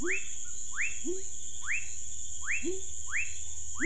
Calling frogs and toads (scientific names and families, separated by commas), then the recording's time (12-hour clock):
Leptodactylus fuscus (Leptodactylidae), Leptodactylus labyrinthicus (Leptodactylidae)
7:00pm